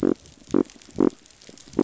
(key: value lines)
label: biophony
recorder: SoundTrap 500